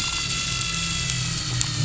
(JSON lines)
{"label": "anthrophony, boat engine", "recorder": "SoundTrap 500"}